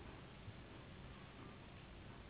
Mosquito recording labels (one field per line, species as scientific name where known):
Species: Anopheles gambiae s.s.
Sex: female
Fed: unfed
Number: one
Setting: insect culture